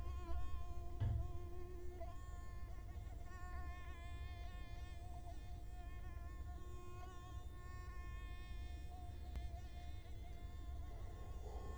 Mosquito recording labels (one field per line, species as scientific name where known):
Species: Culex quinquefasciatus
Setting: cup